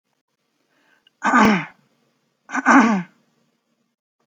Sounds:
Throat clearing